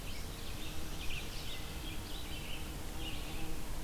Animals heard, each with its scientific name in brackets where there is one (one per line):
Red-eyed Vireo (Vireo olivaceus)